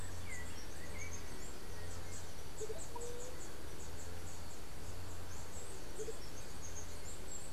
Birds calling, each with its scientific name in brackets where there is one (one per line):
unidentified bird
Andean Motmot (Momotus aequatorialis)
White-tipped Dove (Leptotila verreauxi)
Yellow-backed Oriole (Icterus chrysater)